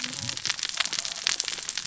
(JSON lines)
{"label": "biophony, cascading saw", "recorder": "SoundTrap 600 or HydroMoth"}